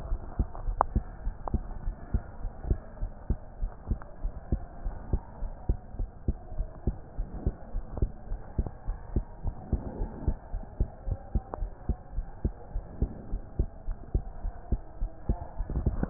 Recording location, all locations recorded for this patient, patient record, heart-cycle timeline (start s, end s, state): pulmonary valve (PV)
aortic valve (AV)+pulmonary valve (PV)+tricuspid valve (TV)+mitral valve (MV)
#Age: Child
#Sex: Female
#Height: 141.0 cm
#Weight: 35.1 kg
#Pregnancy status: False
#Murmur: Absent
#Murmur locations: nan
#Most audible location: nan
#Systolic murmur timing: nan
#Systolic murmur shape: nan
#Systolic murmur grading: nan
#Systolic murmur pitch: nan
#Systolic murmur quality: nan
#Diastolic murmur timing: nan
#Diastolic murmur shape: nan
#Diastolic murmur grading: nan
#Diastolic murmur pitch: nan
#Diastolic murmur quality: nan
#Outcome: Abnormal
#Campaign: 2015 screening campaign
0.00	1.67	unannotated
1.67	1.84	diastole
1.84	1.96	S1
1.96	2.10	systole
2.10	2.22	S2
2.22	2.42	diastole
2.42	2.52	S1
2.52	2.66	systole
2.66	2.82	S2
2.82	3.00	diastole
3.00	3.12	S1
3.12	3.26	systole
3.26	3.38	S2
3.38	3.60	diastole
3.60	3.72	S1
3.72	3.88	systole
3.88	4.00	S2
4.00	4.22	diastole
4.22	4.32	S1
4.32	4.50	systole
4.50	4.64	S2
4.64	4.84	diastole
4.84	4.98	S1
4.98	5.10	systole
5.10	5.22	S2
5.22	5.42	diastole
5.42	5.54	S1
5.54	5.66	systole
5.66	5.80	S2
5.80	5.98	diastole
5.98	6.10	S1
6.10	6.24	systole
6.24	6.36	S2
6.36	6.54	diastole
6.54	6.68	S1
6.68	6.86	systole
6.86	6.98	S2
6.98	7.18	diastole
7.18	7.28	S1
7.28	7.42	systole
7.42	7.54	S2
7.54	7.74	diastole
7.74	7.84	S1
7.84	7.96	systole
7.96	8.10	S2
8.10	8.30	diastole
8.30	8.40	S1
8.40	8.54	systole
8.54	8.68	S2
8.68	8.88	diastole
8.88	8.98	S1
8.98	9.14	systole
9.14	9.24	S2
9.24	9.44	diastole
9.44	9.56	S1
9.56	9.72	systole
9.72	9.82	S2
9.82	9.98	diastole
9.98	10.10	S1
10.10	10.24	systole
10.24	10.38	S2
10.38	10.54	diastole
10.54	10.64	S1
10.64	10.78	systole
10.78	10.90	S2
10.90	11.06	diastole
11.06	11.18	S1
11.18	11.32	systole
11.32	11.44	S2
11.44	11.60	diastole
11.60	11.72	S1
11.72	11.88	systole
11.88	11.98	S2
11.98	12.16	diastole
12.16	12.26	S1
12.26	12.40	systole
12.40	12.54	S2
12.54	12.74	diastole
12.74	12.84	S1
12.84	13.00	systole
13.00	13.10	S2
13.10	13.30	diastole
13.30	13.42	S1
13.42	13.56	systole
13.56	13.68	S2
13.68	13.86	diastole
13.86	13.98	S1
13.98	14.16	systole
14.16	14.28	S2
14.28	14.44	diastole
14.44	14.54	S1
14.54	14.68	systole
14.68	14.82	S2
14.82	15.00	diastole
15.00	15.10	S1
15.10	15.28	systole
15.28	15.42	S2
15.42	16.10	unannotated